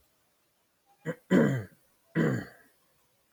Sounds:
Throat clearing